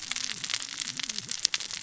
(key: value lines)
label: biophony, cascading saw
recorder: SoundTrap 600 or HydroMoth